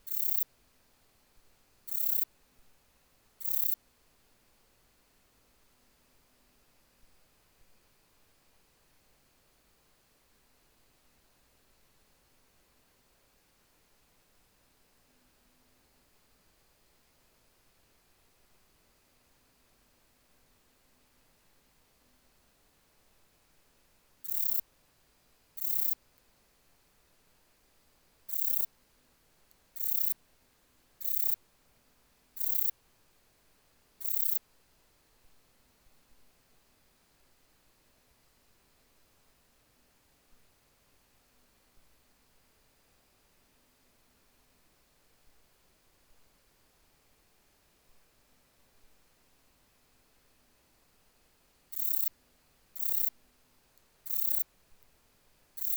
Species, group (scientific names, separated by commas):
Rhacocleis germanica, Orthoptera